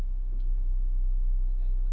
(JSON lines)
{"label": "anthrophony, boat engine", "recorder": "SoundTrap 300"}